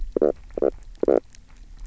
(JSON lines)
{"label": "biophony, knock croak", "recorder": "SoundTrap 300"}